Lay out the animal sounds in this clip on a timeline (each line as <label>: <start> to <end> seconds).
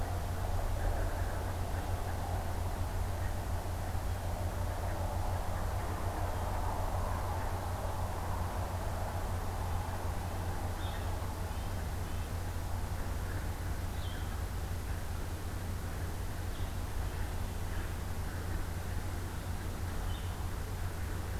Blue Jay (Cyanocitta cristata): 4.0 to 4.4 seconds
Blue Jay (Cyanocitta cristata): 6.2 to 6.6 seconds
Red-breasted Nuthatch (Sitta canadensis): 9.6 to 12.4 seconds
Blue-headed Vireo (Vireo solitarius): 10.8 to 11.1 seconds
Blue-headed Vireo (Vireo solitarius): 13.9 to 16.9 seconds
Red-breasted Nuthatch (Sitta canadensis): 17.0 to 17.4 seconds
Blue-headed Vireo (Vireo solitarius): 20.0 to 20.3 seconds